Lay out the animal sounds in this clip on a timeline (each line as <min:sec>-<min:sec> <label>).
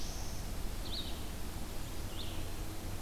0:00.0-0:03.0 Red-eyed Vireo (Vireo olivaceus)